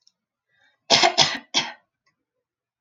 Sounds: Throat clearing